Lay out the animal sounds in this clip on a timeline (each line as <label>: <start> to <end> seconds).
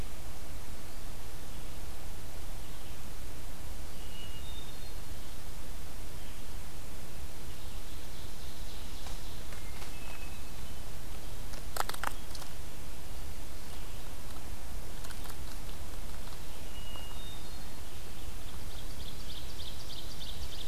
Hermit Thrush (Catharus guttatus): 3.9 to 5.4 seconds
Ovenbird (Seiurus aurocapilla): 7.2 to 9.4 seconds
Hermit Thrush (Catharus guttatus): 9.3 to 11.0 seconds
Hermit Thrush (Catharus guttatus): 16.6 to 18.2 seconds
Ovenbird (Seiurus aurocapilla): 17.9 to 20.7 seconds